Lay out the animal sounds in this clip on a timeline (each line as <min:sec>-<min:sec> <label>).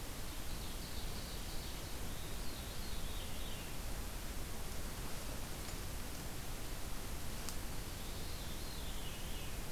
0:00.1-0:01.9 Ovenbird (Seiurus aurocapilla)
0:01.8-0:03.8 Veery (Catharus fuscescens)
0:07.7-0:09.7 Veery (Catharus fuscescens)